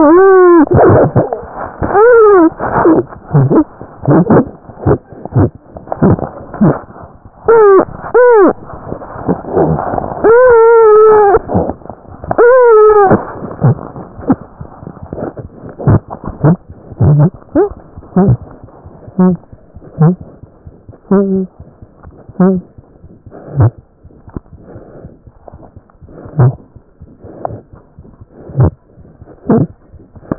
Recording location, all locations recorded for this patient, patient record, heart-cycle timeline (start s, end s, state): aortic valve (AV)
aortic valve (AV)
#Age: Infant
#Sex: Female
#Height: 63.0 cm
#Weight: 4.6 kg
#Pregnancy status: False
#Murmur: Unknown
#Murmur locations: nan
#Most audible location: nan
#Systolic murmur timing: nan
#Systolic murmur shape: nan
#Systolic murmur grading: nan
#Systolic murmur pitch: nan
#Systolic murmur quality: nan
#Diastolic murmur timing: nan
#Diastolic murmur shape: nan
#Diastolic murmur grading: nan
#Diastolic murmur pitch: nan
#Diastolic murmur quality: nan
#Outcome: Abnormal
#Campaign: 2015 screening campaign
0.00	24.03	unannotated
24.03	24.09	S1
24.09	24.26	systole
24.26	24.31	S2
24.31	24.52	diastole
24.52	24.57	S1
24.57	24.74	systole
24.74	24.79	S2
24.79	25.03	diastole
25.03	25.08	S1
25.08	25.25	systole
25.25	25.30	S2
25.30	25.52	diastole
25.52	25.58	S1
25.58	25.75	systole
25.75	25.80	S2
25.80	26.00	diastole
26.00	26.07	S1
26.07	27.96	unannotated
27.96	28.03	S1
28.03	28.19	systole
28.19	28.26	S2
28.26	28.48	diastole
28.48	28.53	S1
28.53	28.97	unannotated
28.97	29.03	S1
29.03	29.20	systole
29.20	29.25	S2
29.25	29.46	diastole
29.46	29.92	unannotated
29.92	29.98	S1
29.98	30.14	systole
30.14	30.19	S2
30.19	30.34	diastole
30.34	30.38	unannotated